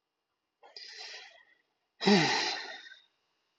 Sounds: Sigh